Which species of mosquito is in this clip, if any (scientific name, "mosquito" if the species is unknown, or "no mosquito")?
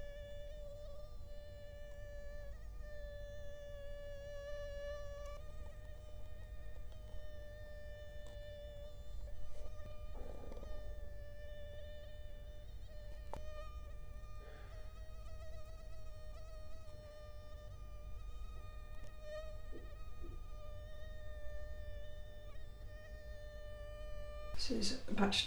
Culex quinquefasciatus